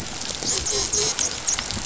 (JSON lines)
{"label": "biophony, dolphin", "recorder": "SoundTrap 500"}